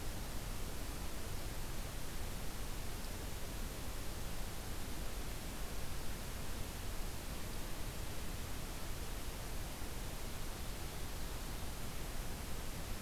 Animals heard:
forest ambience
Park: Acadia National Park